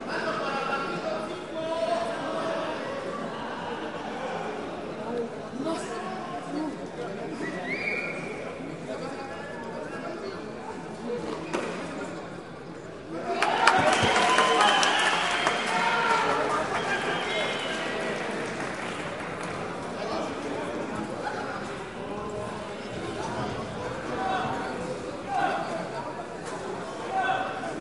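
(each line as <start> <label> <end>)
0.0 Someone is loudly exclaiming in a spacious environment. 2.9
0.0 Murmuring crowd in the background. 27.8
7.4 A person whistles loudly. 8.2
11.0 Rhythmic dull clicking sounds, likely caused by people jumping or throwing objects. 11.8
13.1 An audience applauds energetically. 20.0
15.6 A person is yelling loudly. 17.8
24.1 A person is yelling loudly. 25.7
27.1 A person is yelling loudly. 27.8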